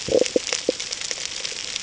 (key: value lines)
label: ambient
recorder: HydroMoth